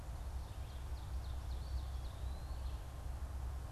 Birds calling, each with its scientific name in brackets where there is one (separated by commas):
Eastern Wood-Pewee (Contopus virens), Ovenbird (Seiurus aurocapilla)